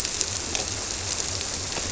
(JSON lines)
{"label": "biophony", "recorder": "SoundTrap 300"}